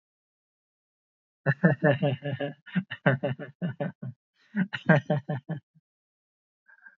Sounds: Laughter